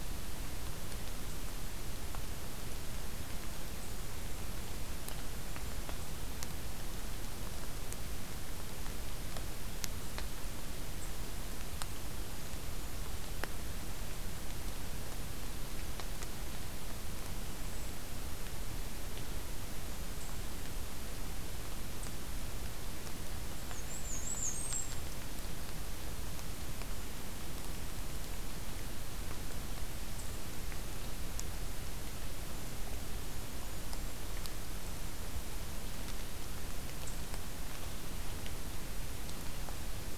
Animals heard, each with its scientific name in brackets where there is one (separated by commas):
Black-and-white Warbler (Mniotilta varia), Golden-crowned Kinglet (Regulus satrapa)